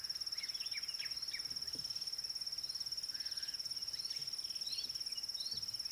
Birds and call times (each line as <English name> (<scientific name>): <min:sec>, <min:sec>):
Pale White-eye (Zosterops flavilateralis): 0:04.7